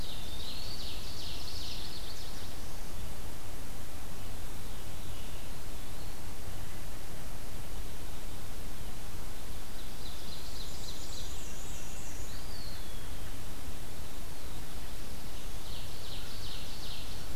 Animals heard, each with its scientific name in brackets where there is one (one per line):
Black-throated Blue Warbler (Setophaga caerulescens)
Veery (Catharus fuscescens)
Black-and-white Warbler (Mniotilta varia)
Eastern Wood-Pewee (Contopus virens)
Ovenbird (Seiurus aurocapilla)